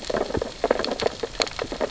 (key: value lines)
label: biophony, sea urchins (Echinidae)
recorder: SoundTrap 600 or HydroMoth